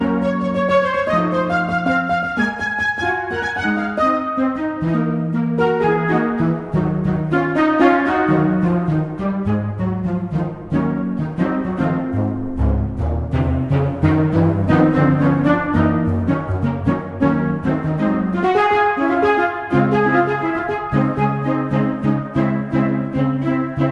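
An orchestra plays a piece of music with string and wind instruments. 0.0 - 23.9

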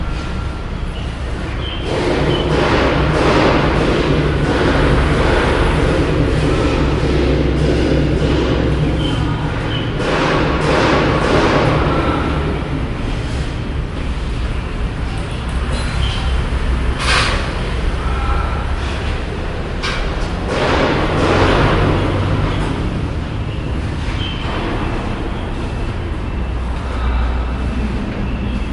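Repeated hammering sounds as workers build or modify a structure, creating rhythmic, percussive impacts. 0.0 - 28.7

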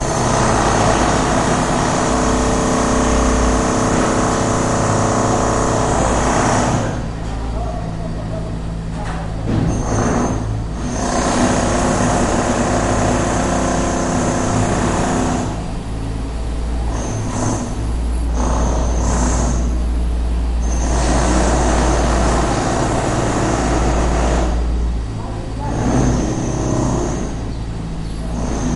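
Loud drilling sounds echo indoors with sharp, continuous bursts of mechanical noise bouncing off hard surfaces. 0.1 - 28.8

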